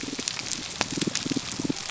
{"label": "biophony, damselfish", "recorder": "SoundTrap 300"}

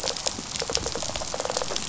{"label": "biophony, rattle response", "recorder": "SoundTrap 500"}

